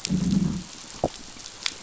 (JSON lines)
{"label": "biophony, growl", "recorder": "SoundTrap 500"}